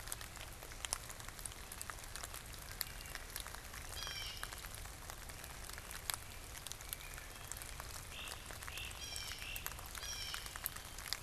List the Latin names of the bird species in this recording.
Hylocichla mustelina, Cyanocitta cristata, Myiarchus crinitus